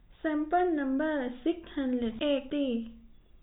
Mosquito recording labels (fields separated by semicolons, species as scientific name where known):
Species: no mosquito; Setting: cup